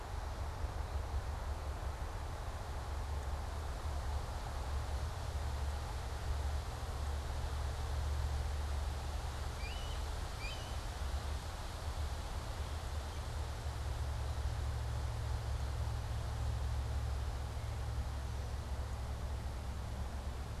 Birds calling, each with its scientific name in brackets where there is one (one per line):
Blue Jay (Cyanocitta cristata)